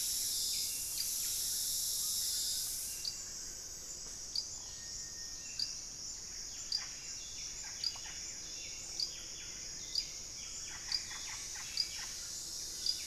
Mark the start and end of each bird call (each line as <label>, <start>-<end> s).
Buff-breasted Wren (Cantorchilus leucotis), 0.0-12.8 s
Hauxwell's Thrush (Turdus hauxwelli), 0.0-13.1 s
Russet-backed Oropendola (Psarocolius angustifrons), 6.5-13.1 s